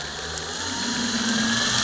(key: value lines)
label: anthrophony, boat engine
recorder: SoundTrap 300